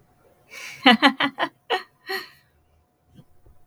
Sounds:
Laughter